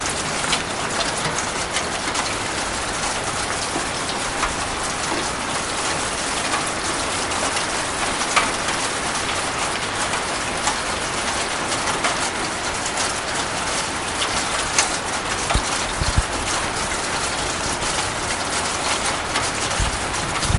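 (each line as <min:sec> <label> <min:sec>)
0:00.2 Heavy rain falling continuously. 0:20.6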